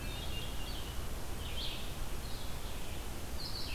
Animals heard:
Hermit Thrush (Catharus guttatus)
Red-eyed Vireo (Vireo olivaceus)

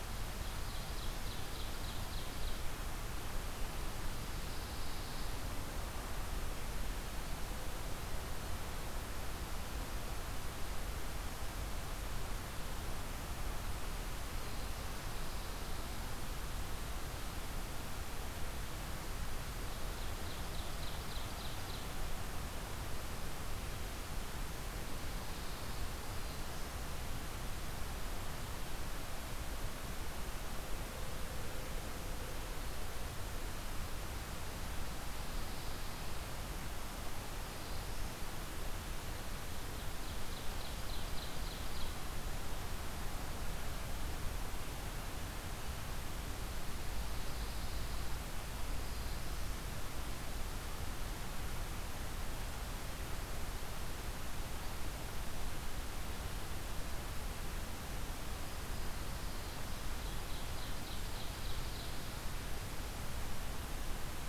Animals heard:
Pine Warbler (Setophaga pinus)
Black-throated Green Warbler (Setophaga virens)
Ovenbird (Seiurus aurocapilla)
Black-throated Blue Warbler (Setophaga caerulescens)

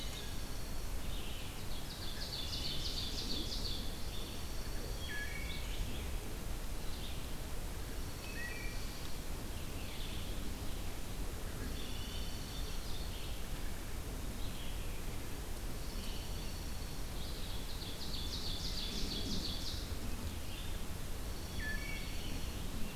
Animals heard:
Red-eyed Vireo (Vireo olivaceus)
Dark-eyed Junco (Junco hyemalis)
Wood Thrush (Hylocichla mustelina)
Ovenbird (Seiurus aurocapilla)

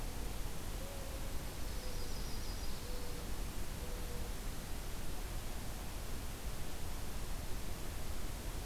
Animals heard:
Dark-eyed Junco (Junco hyemalis)
Yellow-rumped Warbler (Setophaga coronata)

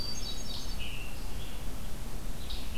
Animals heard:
Scarlet Tanager (Piranga olivacea)
Red-eyed Vireo (Vireo olivaceus)
Hermit Thrush (Catharus guttatus)

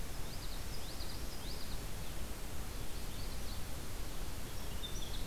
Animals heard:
Winter Wren (Troglodytes hiemalis)
Magnolia Warbler (Setophaga magnolia)
Common Yellowthroat (Geothlypis trichas)

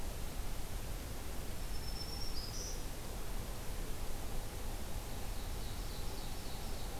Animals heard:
Ovenbird (Seiurus aurocapilla)
Black-throated Green Warbler (Setophaga virens)

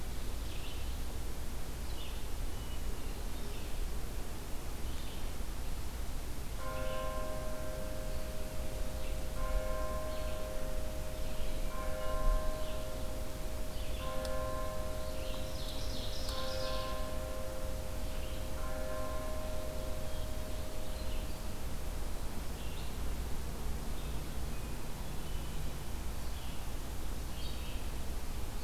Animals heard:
Ovenbird (Seiurus aurocapilla)
Wood Thrush (Hylocichla mustelina)
Red-eyed Vireo (Vireo olivaceus)

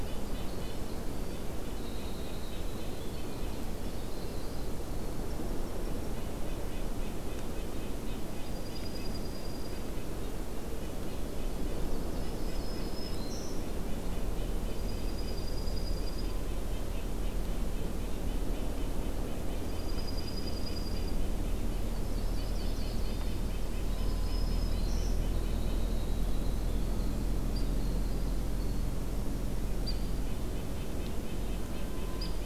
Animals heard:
Red-breasted Nuthatch (Sitta canadensis)
Winter Wren (Troglodytes hiemalis)
Dark-eyed Junco (Junco hyemalis)
Yellow-rumped Warbler (Setophaga coronata)
Black-throated Green Warbler (Setophaga virens)
Hairy Woodpecker (Dryobates villosus)

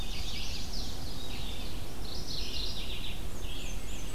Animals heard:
Red-eyed Vireo (Vireo olivaceus)
Mourning Warbler (Geothlypis philadelphia)
Black-and-white Warbler (Mniotilta varia)
Chestnut-sided Warbler (Setophaga pensylvanica)

